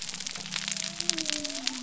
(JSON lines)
{"label": "biophony", "recorder": "SoundTrap 300"}